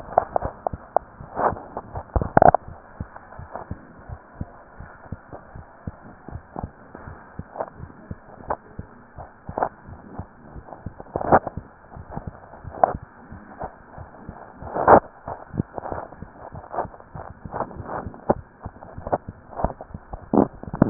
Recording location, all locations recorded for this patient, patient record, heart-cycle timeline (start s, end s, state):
mitral valve (MV)
aortic valve (AV)+pulmonary valve (PV)+tricuspid valve (TV)+mitral valve (MV)
#Age: Child
#Sex: Female
#Height: 129.0 cm
#Weight: 28.8 kg
#Pregnancy status: False
#Murmur: Unknown
#Murmur locations: nan
#Most audible location: nan
#Systolic murmur timing: nan
#Systolic murmur shape: nan
#Systolic murmur grading: nan
#Systolic murmur pitch: nan
#Systolic murmur quality: nan
#Diastolic murmur timing: nan
#Diastolic murmur shape: nan
#Diastolic murmur grading: nan
#Diastolic murmur pitch: nan
#Diastolic murmur quality: nan
#Outcome: Normal
#Campaign: 2015 screening campaign
0.00	2.66	unannotated
2.66	2.78	S1
2.78	2.96	systole
2.96	3.08	S2
3.08	3.38	diastole
3.38	3.50	S1
3.50	3.70	systole
3.70	3.80	S2
3.80	4.08	diastole
4.08	4.18	S1
4.18	4.36	systole
4.36	4.50	S2
4.50	4.78	diastole
4.78	4.90	S1
4.90	5.10	systole
5.10	5.20	S2
5.20	5.54	diastole
5.54	5.64	S1
5.64	5.86	systole
5.86	5.96	S2
5.96	6.30	diastole
6.30	6.42	S1
6.42	6.60	systole
6.60	6.72	S2
6.72	7.06	diastole
7.06	7.18	S1
7.18	7.35	systole
7.35	7.48	S2
7.48	7.78	diastole
7.78	7.90	S1
7.90	8.06	systole
8.06	8.16	S2
8.16	8.44	diastole
8.44	8.56	S1
8.56	8.74	systole
8.74	8.86	S2
8.86	9.16	diastole
9.16	9.28	S1
9.28	9.46	systole
9.46	9.56	S2
9.56	9.75	diastole
9.75	20.90	unannotated